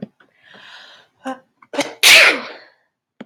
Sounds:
Sneeze